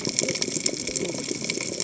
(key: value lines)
label: biophony, cascading saw
recorder: HydroMoth